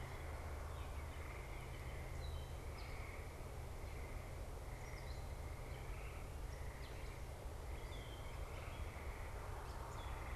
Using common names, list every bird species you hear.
unidentified bird